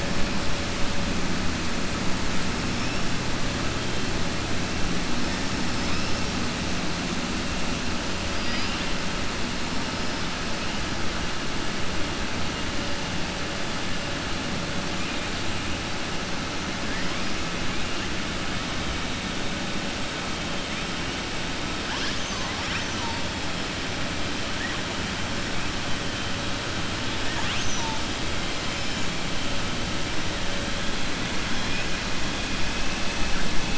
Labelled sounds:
8.3	8.9	killer whale, 1.9 to 5.6 kHz

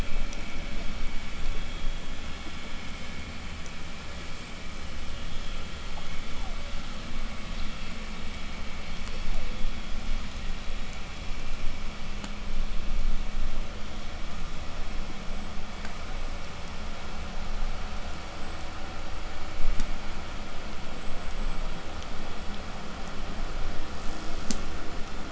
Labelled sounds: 0.7	12.6	killer whale, 7.7 to 8.0 kHz
5.7	7.0	killer whale, southern resident, 0.32 to 3.5 kHz
8.7	10.0	killer whale, southern resident, 0.32 to 5.9 kHz
14.7	21.7	killer whale, southern resident, 7.0 to 8.0 kHz

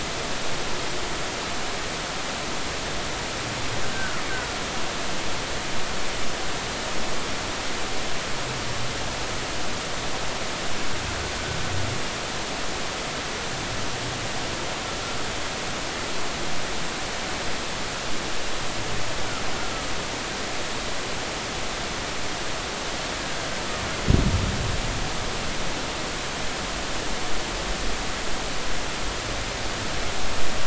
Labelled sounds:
3.9	4.6	killer whale, Bigg's (transient), 1.2 to 1.6 kHz
19.6	19.8	killer whale, Bigg's (transient), 1.2 to 1.5 kHz

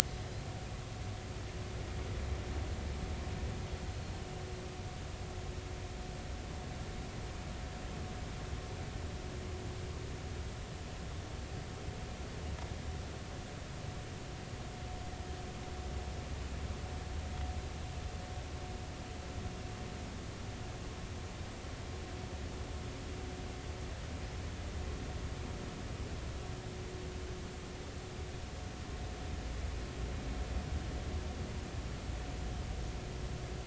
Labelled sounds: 0.1	0.4	Pacific white-sided dolphin, 4.9 to 5.1 kHz

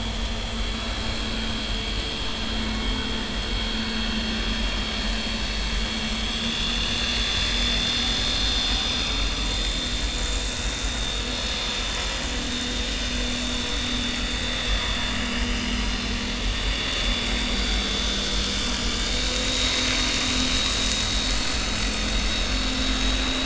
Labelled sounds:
0.7	1.0	vessel noise, 3.8 to 4.0 kHz
2.6	2.9	vessel noise, 2.1 to 2.2 kHz
6.2	8.1	vessel noise, 2.7 to 5.0 kHz
10.8	11.1	vessel noise, 3.4 to 3.7 kHz
14.2	14.9	vessel noise, 3.4 to 6.6 kHz
15.4	15.8	vessel noise, 2.8 to 3.2 kHz
17.5	17.8	vessel noise, 1.3 to 1.6 kHz
19.1	20.8	vessel noise, 3.6 to 4.0 kHz

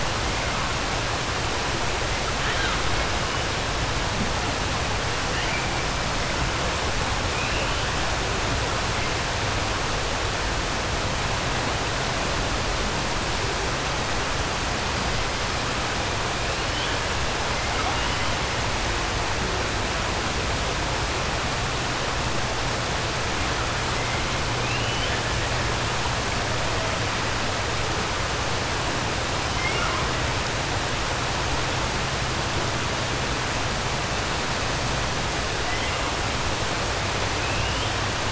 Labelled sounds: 24.6	25.2	killer whale, 2.1 to 3.5 kHz
29.5	30.0	killer whale, 0.46 to 3.3 kHz

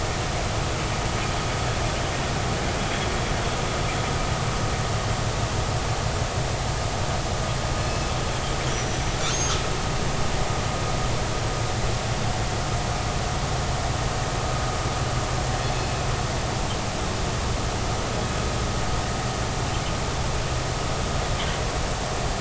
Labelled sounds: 8.7	9.1	killer whale, northern resident, G clan, call N23i, 5.8 to 6.0 kHz

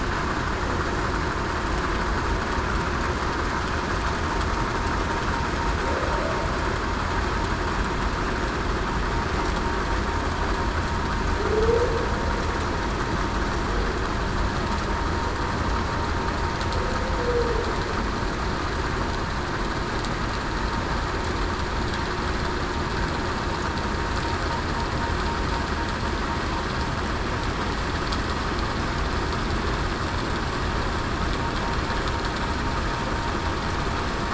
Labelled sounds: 11.4	12.0	humpback whale, 0.40 to 0.54 kHz

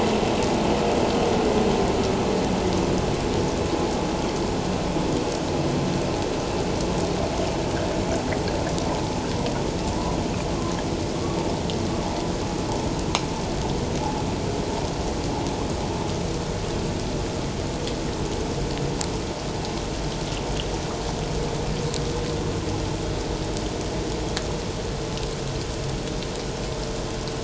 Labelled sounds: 14.0	14.2	vessel noise, 0.78 to 0.91 kHz

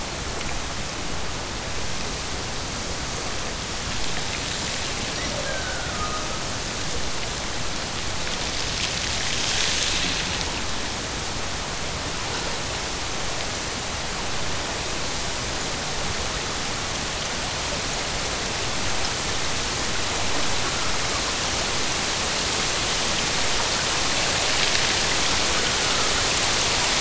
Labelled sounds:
5.1	6.5	killer whale, Bigg's (transient), Gulf of Alaska transient, 0.30 to 2.2 kHz

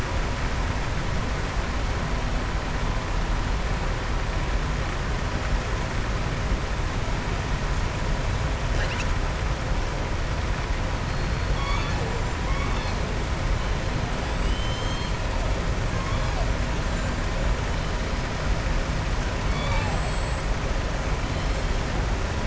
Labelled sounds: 11.4	12.1	killer whale, southern resident, 0.47 to 6.6 kHz
12.4	13.0	killer whale, southern resident, 1.1 to 5.3 kHz
14.3	15.1	killer whale, southern resident, 2.9 to 7.7 kHz
19.6	20.5	killer whale, southern resident, 7.4 to 8.0 kHz

